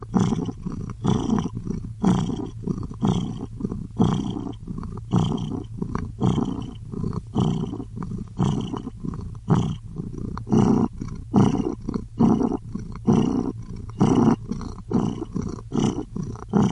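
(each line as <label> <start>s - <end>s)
A cat purring softly. 0.0s - 16.7s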